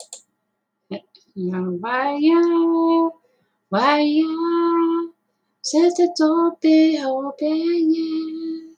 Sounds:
Sigh